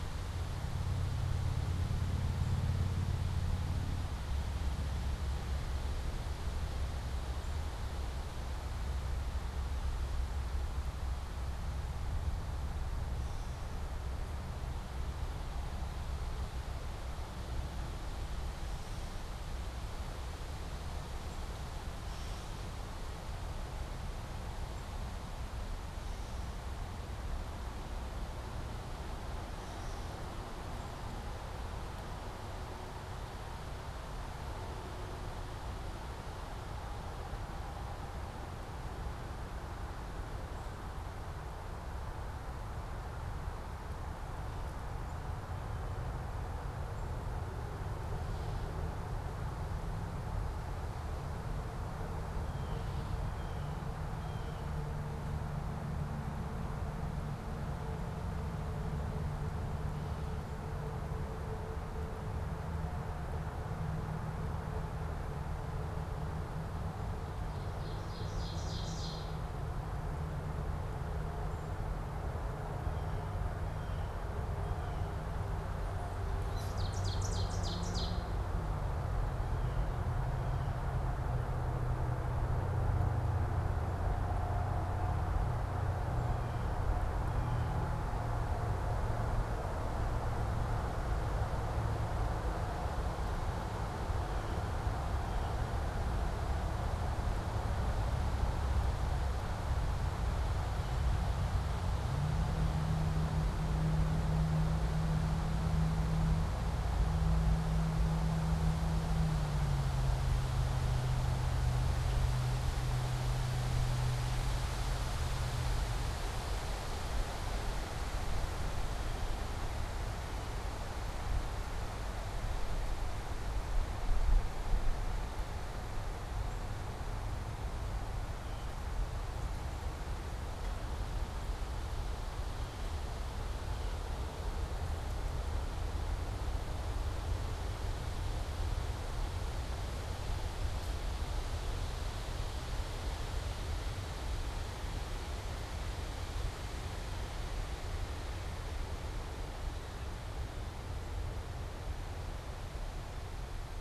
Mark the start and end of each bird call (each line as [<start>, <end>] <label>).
[12.96, 13.96] Gray Catbird (Dumetella carolinensis)
[18.36, 19.16] Gray Catbird (Dumetella carolinensis)
[21.96, 22.86] Gray Catbird (Dumetella carolinensis)
[25.76, 26.66] Gray Catbird (Dumetella carolinensis)
[29.26, 30.26] Gray Catbird (Dumetella carolinensis)
[47.76, 53.16] Gray Catbird (Dumetella carolinensis)
[52.26, 54.76] Blue Jay (Cyanocitta cristata)
[67.36, 69.66] Ovenbird (Seiurus aurocapilla)
[72.76, 75.36] Blue Jay (Cyanocitta cristata)
[76.36, 78.46] Ovenbird (Seiurus aurocapilla)
[79.36, 81.06] Blue Jay (Cyanocitta cristata)
[86.06, 87.96] Blue Jay (Cyanocitta cristata)
[93.96, 95.76] Blue Jay (Cyanocitta cristata)
[128.26, 128.96] Blue Jay (Cyanocitta cristata)